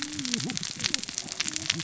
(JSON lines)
{"label": "biophony, cascading saw", "recorder": "SoundTrap 600 or HydroMoth"}